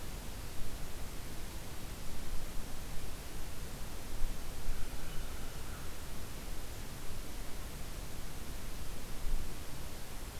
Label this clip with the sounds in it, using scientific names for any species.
Corvus brachyrhynchos